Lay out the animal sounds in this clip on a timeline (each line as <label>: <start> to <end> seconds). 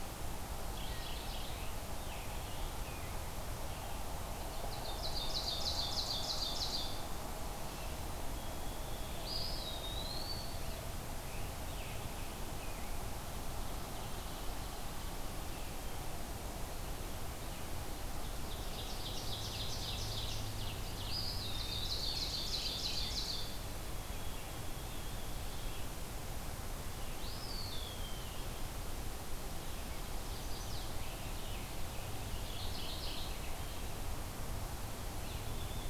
Mourning Warbler (Geothlypis philadelphia): 0.6 to 1.7 seconds
Scarlet Tanager (Piranga olivacea): 1.4 to 3.3 seconds
Ovenbird (Seiurus aurocapilla): 4.5 to 7.1 seconds
White-throated Sparrow (Zonotrichia albicollis): 8.3 to 10.6 seconds
Eastern Wood-Pewee (Contopus virens): 9.0 to 10.7 seconds
Scarlet Tanager (Piranga olivacea): 10.9 to 13.2 seconds
Ovenbird (Seiurus aurocapilla): 17.8 to 20.9 seconds
Eastern Wood-Pewee (Contopus virens): 21.0 to 22.1 seconds
Ovenbird (Seiurus aurocapilla): 21.9 to 23.7 seconds
Mourning Warbler (Geothlypis philadelphia): 22.0 to 23.2 seconds
White-throated Sparrow (Zonotrichia albicollis): 23.4 to 26.1 seconds
Eastern Wood-Pewee (Contopus virens): 27.1 to 28.4 seconds
Chestnut-sided Warbler (Setophaga pensylvanica): 29.6 to 30.9 seconds
Scarlet Tanager (Piranga olivacea): 30.6 to 32.5 seconds
Mourning Warbler (Geothlypis philadelphia): 32.3 to 33.3 seconds